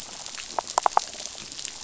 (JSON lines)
{"label": "biophony", "recorder": "SoundTrap 500"}